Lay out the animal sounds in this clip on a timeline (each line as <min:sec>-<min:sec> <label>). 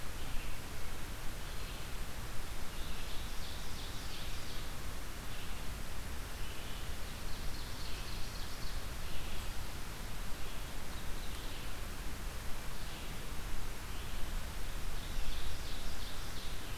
0:00.0-0:16.7 Red-eyed Vireo (Vireo olivaceus)
0:02.6-0:04.6 Ovenbird (Seiurus aurocapilla)
0:06.8-0:08.7 Ovenbird (Seiurus aurocapilla)
0:14.7-0:16.6 Ovenbird (Seiurus aurocapilla)